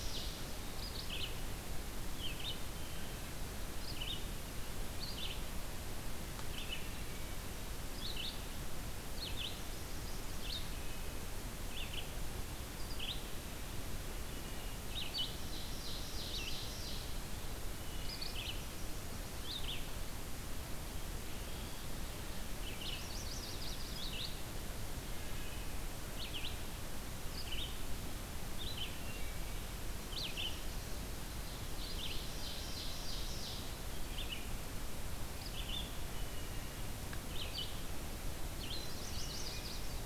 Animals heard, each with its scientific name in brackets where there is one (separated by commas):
Black-and-white Warbler (Mniotilta varia), Chestnut-sided Warbler (Setophaga pensylvanica), Ovenbird (Seiurus aurocapilla), Red-eyed Vireo (Vireo olivaceus), Wood Thrush (Hylocichla mustelina), Eastern Wood-Pewee (Contopus virens)